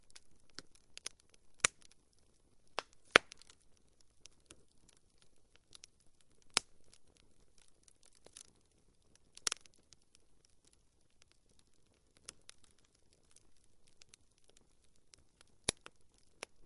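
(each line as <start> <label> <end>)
0.0 A fire burns calmly indoors. 16.7
0.6 Burning wood crackles repeatedly. 3.4
6.3 Wood crackling as it burns. 6.9
9.3 Burning wood crackles repeatedly. 9.9
12.2 A spark crackles quietly. 12.8
15.5 Burning wood crackles repeatedly. 16.7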